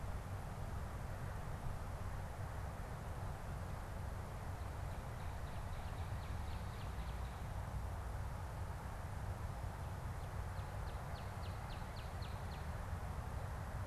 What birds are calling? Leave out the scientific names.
Northern Cardinal